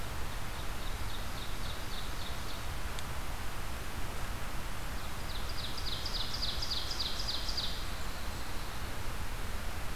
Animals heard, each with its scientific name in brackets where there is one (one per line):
Ovenbird (Seiurus aurocapilla)
Blackburnian Warbler (Setophaga fusca)